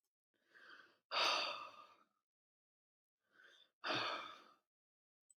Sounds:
Sigh